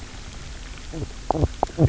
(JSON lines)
{"label": "biophony, knock croak", "recorder": "SoundTrap 300"}